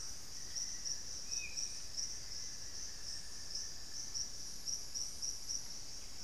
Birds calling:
Grayish Mourner (Rhytipterna simplex)
Hauxwell's Thrush (Turdus hauxwelli)
Amazonian Barred-Woodcreeper (Dendrocolaptes certhia)

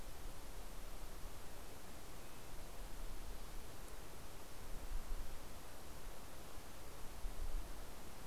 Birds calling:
Red-breasted Nuthatch (Sitta canadensis)

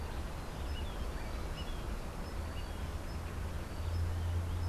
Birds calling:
Melodious Blackbird (Dives dives)

